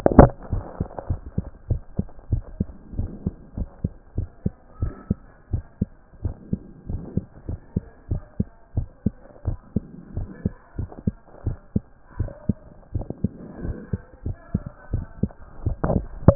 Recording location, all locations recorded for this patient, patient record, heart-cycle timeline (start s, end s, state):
mitral valve (MV)
aortic valve (AV)+pulmonary valve (PV)+tricuspid valve (TV)+mitral valve (MV)
#Age: Child
#Sex: Male
#Height: 140.0 cm
#Weight: 33.2 kg
#Pregnancy status: False
#Murmur: Absent
#Murmur locations: nan
#Most audible location: nan
#Systolic murmur timing: nan
#Systolic murmur shape: nan
#Systolic murmur grading: nan
#Systolic murmur pitch: nan
#Systolic murmur quality: nan
#Diastolic murmur timing: nan
#Diastolic murmur shape: nan
#Diastolic murmur grading: nan
#Diastolic murmur pitch: nan
#Diastolic murmur quality: nan
#Outcome: Normal
#Campaign: 2014 screening campaign
0.00	0.12	systole
0.12	0.30	S2
0.30	0.52	diastole
0.52	0.64	S1
0.64	0.78	systole
0.78	0.88	S2
0.88	1.08	diastole
1.08	1.20	S1
1.20	1.36	systole
1.36	1.46	S2
1.46	1.68	diastole
1.68	1.82	S1
1.82	1.98	systole
1.98	2.06	S2
2.06	2.30	diastole
2.30	2.44	S1
2.44	2.58	systole
2.58	2.68	S2
2.68	2.96	diastole
2.96	3.10	S1
3.10	3.24	systole
3.24	3.34	S2
3.34	3.58	diastole
3.58	3.68	S1
3.68	3.82	systole
3.82	3.92	S2
3.92	4.16	diastole
4.16	4.28	S1
4.28	4.44	systole
4.44	4.52	S2
4.52	4.80	diastole
4.80	4.94	S1
4.94	5.08	systole
5.08	5.18	S2
5.18	5.52	diastole
5.52	5.64	S1
5.64	5.80	systole
5.80	5.90	S2
5.90	6.24	diastole
6.24	6.34	S1
6.34	6.50	systole
6.50	6.60	S2
6.60	6.90	diastole
6.90	7.02	S1
7.02	7.16	systole
7.16	7.26	S2
7.26	7.48	diastole
7.48	7.60	S1
7.60	7.74	systole
7.74	7.84	S2
7.84	8.10	diastole
8.10	8.22	S1
8.22	8.38	systole
8.38	8.48	S2
8.48	8.76	diastole
8.76	8.88	S1
8.88	9.04	systole
9.04	9.14	S2
9.14	9.46	diastole
9.46	9.58	S1
9.58	9.74	systole
9.74	9.84	S2
9.84	10.16	diastole
10.16	10.28	S1
10.28	10.44	systole
10.44	10.54	S2
10.54	10.78	diastole
10.78	10.90	S1
10.90	11.06	systole
11.06	11.14	S2
11.14	11.46	diastole
11.46	11.56	S1
11.56	11.74	systole
11.74	11.84	S2
11.84	12.18	diastole
12.18	12.30	S1
12.30	12.48	systole
12.48	12.56	S2
12.56	12.94	diastole
12.94	13.06	S1
13.06	13.22	systole
13.22	13.32	S2
13.32	13.64	diastole
13.64	13.76	S1
13.76	13.92	systole
13.92	14.00	S2
14.00	14.24	diastole
14.24	14.36	S1
14.36	14.52	systole
14.52	14.62	S2
14.62	14.92	diastole
14.92	15.04	S1
15.04	15.22	systole
15.22	15.30	S2
15.30	15.68	diastole
15.68	15.76	S1
15.76	15.90	systole
15.90	16.04	S2
16.04	16.26	diastole
16.26	16.35	S1